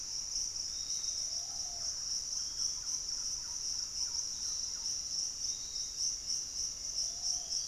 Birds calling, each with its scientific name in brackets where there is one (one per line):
Thrush-like Wren (Campylorhynchus turdinus)
Piratic Flycatcher (Legatus leucophaius)
Ringed Woodpecker (Celeus torquatus)
Hauxwell's Thrush (Turdus hauxwelli)